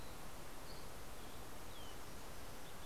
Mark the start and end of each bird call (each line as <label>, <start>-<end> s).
Dusky Flycatcher (Empidonax oberholseri), 0.0-2.9 s